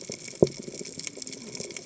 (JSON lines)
{"label": "biophony, cascading saw", "recorder": "HydroMoth"}